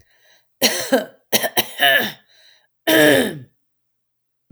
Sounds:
Throat clearing